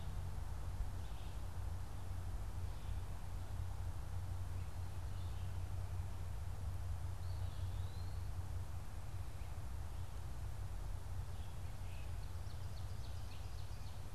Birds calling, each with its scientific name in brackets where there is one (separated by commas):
Eastern Wood-Pewee (Contopus virens), Ovenbird (Seiurus aurocapilla)